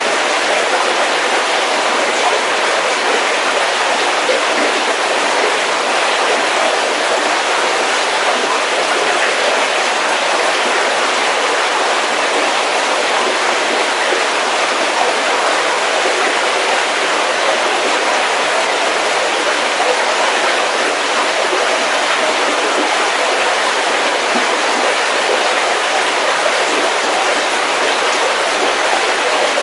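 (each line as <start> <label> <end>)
0.0 Water flows steadily through a channel. 29.6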